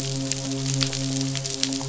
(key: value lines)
label: biophony, midshipman
recorder: SoundTrap 500